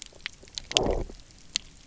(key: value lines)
label: biophony, low growl
recorder: SoundTrap 300